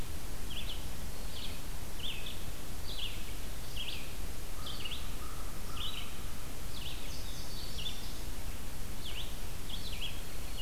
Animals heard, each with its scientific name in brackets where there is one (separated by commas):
American Crow (Corvus brachyrhynchos), Indigo Bunting (Passerina cyanea), Red-eyed Vireo (Vireo olivaceus), Black-throated Green Warbler (Setophaga virens)